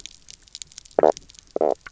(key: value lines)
label: biophony, knock croak
recorder: SoundTrap 300